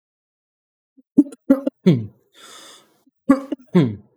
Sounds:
Cough